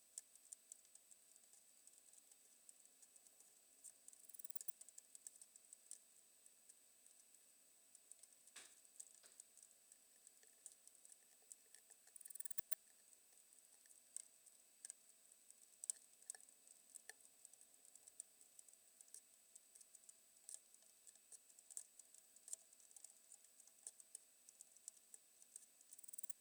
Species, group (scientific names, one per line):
Poecilimon paros
Orthoptera